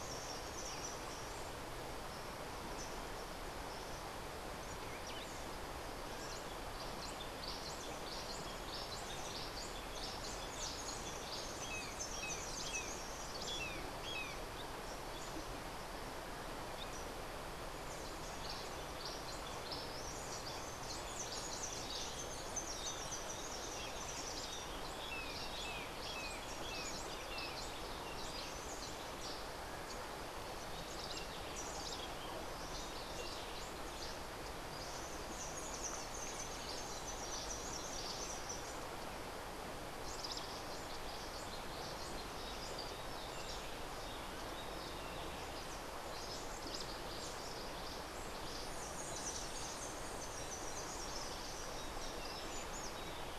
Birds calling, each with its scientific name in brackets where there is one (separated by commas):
Rufous-breasted Wren (Pheugopedius rutilus), Cabanis's Wren (Cantorchilus modestus), White-eared Ground-Sparrow (Melozone leucotis), Brown Jay (Psilorhinus morio)